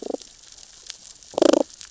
{"label": "biophony, damselfish", "recorder": "SoundTrap 600 or HydroMoth"}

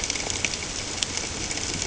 {"label": "ambient", "recorder": "HydroMoth"}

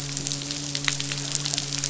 {"label": "biophony, midshipman", "recorder": "SoundTrap 500"}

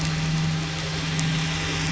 {"label": "anthrophony, boat engine", "recorder": "SoundTrap 500"}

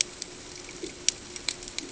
{"label": "ambient", "recorder": "HydroMoth"}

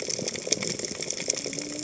{"label": "biophony, cascading saw", "recorder": "HydroMoth"}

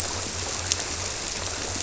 {"label": "biophony", "recorder": "SoundTrap 300"}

